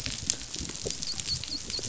{"label": "biophony, dolphin", "recorder": "SoundTrap 500"}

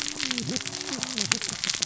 {"label": "biophony, cascading saw", "recorder": "SoundTrap 600 or HydroMoth"}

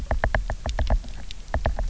{"label": "biophony, knock", "recorder": "SoundTrap 300"}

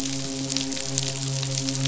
{"label": "biophony, midshipman", "recorder": "SoundTrap 500"}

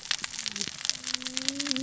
{"label": "biophony, cascading saw", "recorder": "SoundTrap 600 or HydroMoth"}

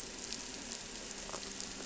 {"label": "anthrophony, boat engine", "recorder": "SoundTrap 300"}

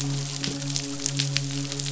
{"label": "biophony, midshipman", "recorder": "SoundTrap 500"}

